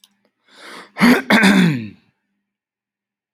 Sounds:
Throat clearing